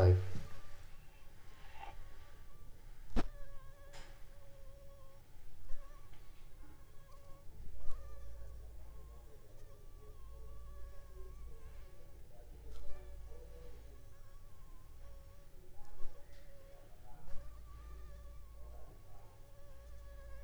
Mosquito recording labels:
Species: Anopheles funestus s.l.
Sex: female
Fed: unfed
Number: one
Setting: cup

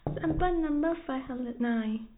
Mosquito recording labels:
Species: no mosquito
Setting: cup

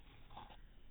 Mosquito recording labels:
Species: no mosquito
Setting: cup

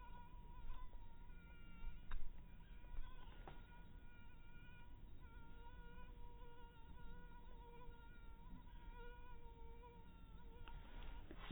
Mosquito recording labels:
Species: mosquito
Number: one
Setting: cup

